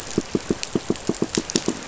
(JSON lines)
{"label": "biophony, pulse", "recorder": "SoundTrap 500"}